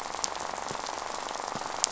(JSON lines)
{"label": "biophony, rattle", "recorder": "SoundTrap 500"}